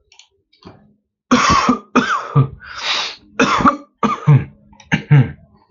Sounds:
Cough